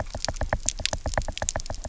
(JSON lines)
{"label": "biophony, knock", "recorder": "SoundTrap 300"}